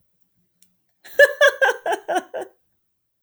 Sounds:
Laughter